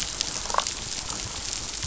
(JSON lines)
{"label": "biophony, damselfish", "recorder": "SoundTrap 500"}